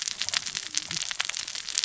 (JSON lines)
{"label": "biophony, cascading saw", "recorder": "SoundTrap 600 or HydroMoth"}